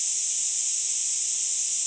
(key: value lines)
label: ambient
recorder: HydroMoth